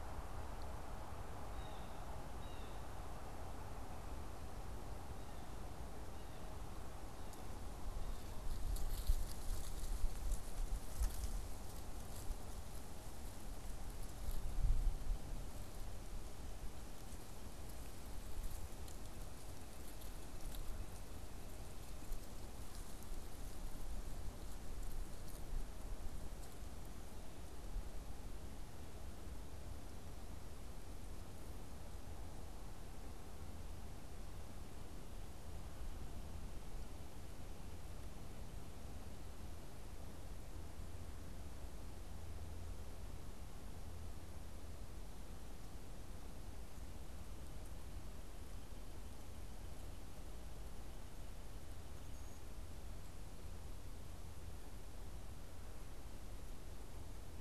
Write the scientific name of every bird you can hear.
Cyanocitta cristata